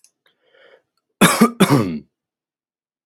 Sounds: Cough